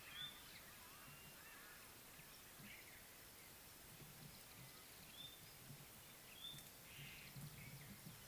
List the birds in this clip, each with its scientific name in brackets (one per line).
White-browed Robin-Chat (Cossypha heuglini)